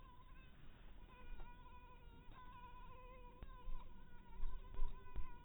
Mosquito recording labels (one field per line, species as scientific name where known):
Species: mosquito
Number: one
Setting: cup